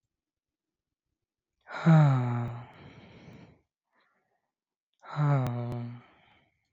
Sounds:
Sigh